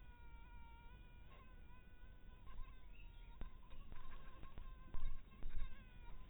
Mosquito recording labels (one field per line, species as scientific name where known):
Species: mosquito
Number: one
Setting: cup